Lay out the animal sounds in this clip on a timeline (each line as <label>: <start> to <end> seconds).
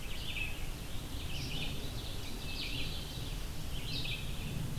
Red-eyed Vireo (Vireo olivaceus): 0.0 to 4.8 seconds
Ovenbird (Seiurus aurocapilla): 0.8 to 2.7 seconds